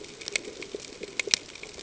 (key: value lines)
label: ambient
recorder: HydroMoth